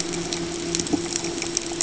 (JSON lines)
{"label": "ambient", "recorder": "HydroMoth"}